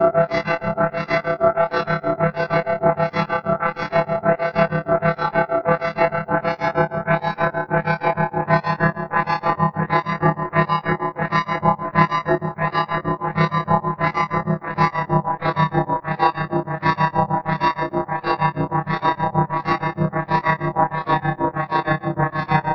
What is making the noise?
synthesizer